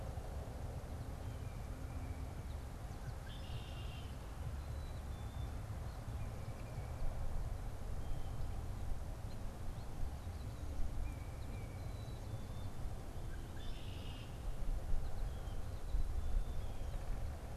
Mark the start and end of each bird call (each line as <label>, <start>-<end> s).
Red-winged Blackbird (Agelaius phoeniceus), 2.9-4.2 s
Black-capped Chickadee (Poecile atricapillus), 4.4-5.6 s
Tufted Titmouse (Baeolophus bicolor), 6.1-12.3 s
Black-capped Chickadee (Poecile atricapillus), 11.8-12.8 s
Red-winged Blackbird (Agelaius phoeniceus), 13.2-14.4 s
unidentified bird, 14.9-15.8 s